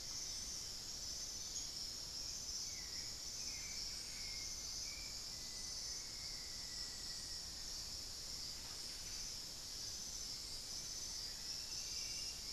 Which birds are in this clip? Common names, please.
unidentified bird, Hauxwell's Thrush, Black-faced Antthrush, Buff-breasted Wren